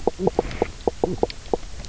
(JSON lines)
{"label": "biophony, knock croak", "recorder": "SoundTrap 300"}